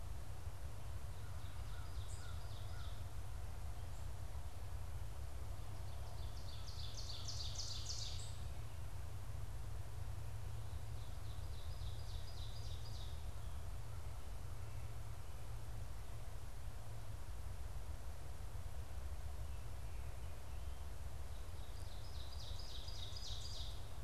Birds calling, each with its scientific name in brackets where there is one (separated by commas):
American Crow (Corvus brachyrhynchos), Ovenbird (Seiurus aurocapilla)